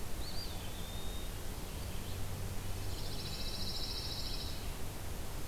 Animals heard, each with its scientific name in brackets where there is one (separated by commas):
Eastern Wood-Pewee (Contopus virens), Red-eyed Vireo (Vireo olivaceus), Pine Warbler (Setophaga pinus)